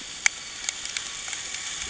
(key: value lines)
label: anthrophony, boat engine
recorder: HydroMoth